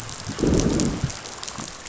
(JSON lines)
{"label": "biophony, growl", "recorder": "SoundTrap 500"}